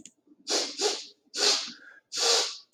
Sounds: Sniff